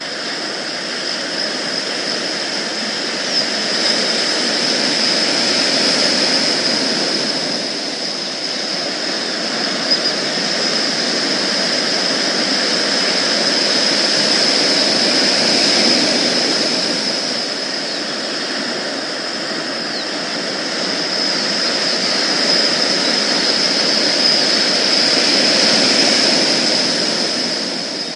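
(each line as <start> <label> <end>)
0.0 Waves repeatedly crashing on a seashore. 28.2
1.5 Birds chirp quietly in the background. 5.3
9.3 Birds chirp quietly in the background. 13.1
16.8 Birds chirp quietly in the background. 24.1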